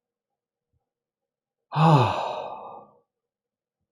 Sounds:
Sigh